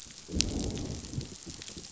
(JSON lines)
{"label": "biophony, growl", "recorder": "SoundTrap 500"}